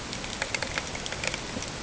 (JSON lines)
{"label": "ambient", "recorder": "HydroMoth"}